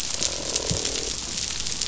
{"label": "biophony, croak", "recorder": "SoundTrap 500"}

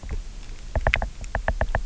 {"label": "biophony, knock", "recorder": "SoundTrap 300"}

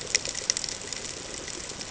{"label": "ambient", "recorder": "HydroMoth"}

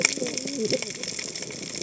{"label": "biophony, cascading saw", "recorder": "HydroMoth"}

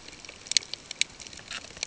{"label": "ambient", "recorder": "HydroMoth"}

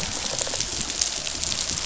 {"label": "biophony, rattle response", "recorder": "SoundTrap 500"}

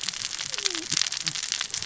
{"label": "biophony, cascading saw", "recorder": "SoundTrap 600 or HydroMoth"}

